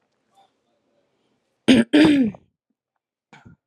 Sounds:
Throat clearing